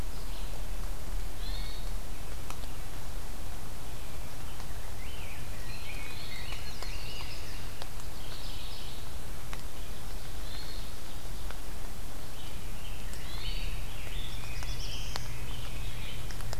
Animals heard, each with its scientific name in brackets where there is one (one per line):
Chestnut-sided Warbler (Setophaga pensylvanica)
Hermit Thrush (Catharus guttatus)
Rose-breasted Grosbeak (Pheucticus ludovicianus)
Black-throated Blue Warbler (Setophaga caerulescens)
Mourning Warbler (Geothlypis philadelphia)